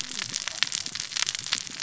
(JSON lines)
{"label": "biophony, cascading saw", "recorder": "SoundTrap 600 or HydroMoth"}